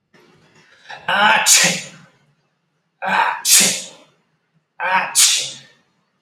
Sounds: Sneeze